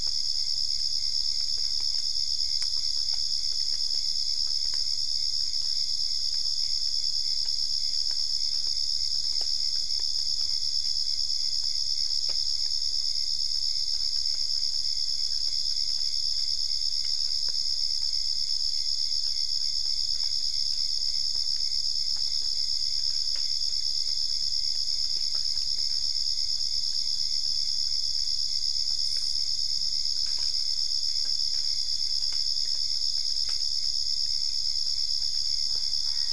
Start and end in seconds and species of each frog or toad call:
none

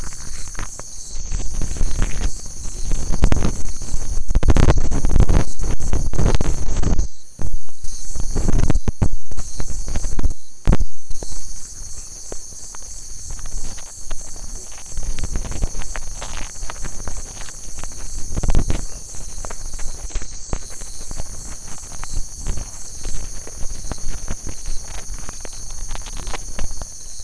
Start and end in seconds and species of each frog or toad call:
17.9	18.1	Leptodactylus latrans
22.3	22.6	Leptodactylus latrans
25.6	25.8	Leptodactylus latrans

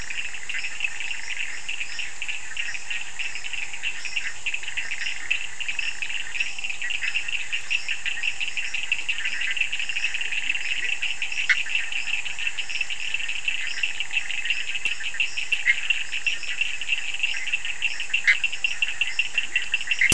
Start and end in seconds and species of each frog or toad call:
0.0	20.1	Bischoff's tree frog
10.3	11.2	Leptodactylus latrans
19.1	19.9	Leptodactylus latrans

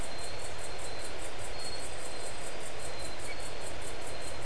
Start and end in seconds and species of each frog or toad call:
none

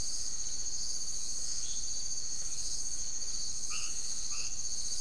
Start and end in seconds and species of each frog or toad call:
0.0	4.8	blacksmith tree frog
3.5	4.8	marbled tropical bullfrog

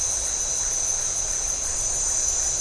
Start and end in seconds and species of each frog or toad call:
none

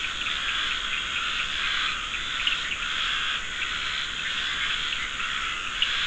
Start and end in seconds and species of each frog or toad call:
0.0	6.0	Scinax perereca
1.5	2.2	Dendropsophus nahdereri

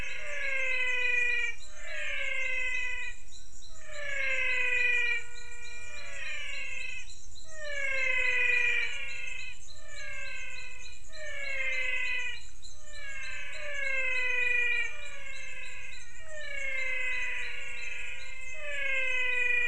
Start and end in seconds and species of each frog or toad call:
0.0	3.1	pointedbelly frog
0.0	19.6	menwig frog

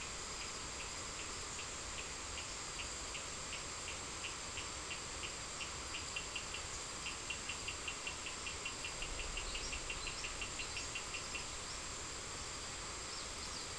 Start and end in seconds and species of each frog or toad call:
0.0	11.6	Cochran's lime tree frog

